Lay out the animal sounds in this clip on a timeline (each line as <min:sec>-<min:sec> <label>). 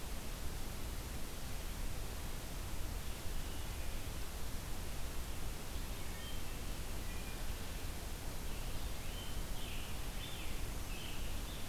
0:05.7-0:07.5 Wood Thrush (Hylocichla mustelina)
0:08.5-0:11.7 Scarlet Tanager (Piranga olivacea)